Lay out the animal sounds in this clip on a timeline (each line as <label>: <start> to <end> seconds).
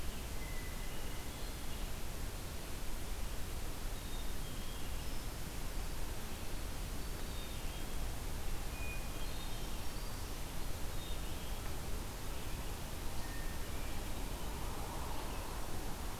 Hermit Thrush (Catharus guttatus): 0.2 to 2.0 seconds
Black-capped Chickadee (Poecile atricapillus): 3.9 to 4.9 seconds
Black-capped Chickadee (Poecile atricapillus): 7.2 to 8.1 seconds
Hermit Thrush (Catharus guttatus): 8.5 to 10.1 seconds
Hermit Thrush (Catharus guttatus): 13.0 to 14.4 seconds